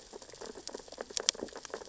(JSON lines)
{"label": "biophony, sea urchins (Echinidae)", "recorder": "SoundTrap 600 or HydroMoth"}